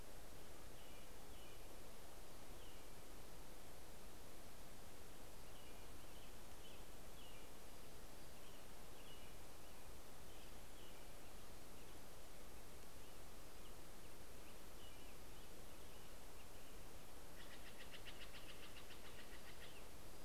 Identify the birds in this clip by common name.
American Robin, Steller's Jay